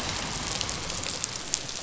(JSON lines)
{"label": "biophony", "recorder": "SoundTrap 500"}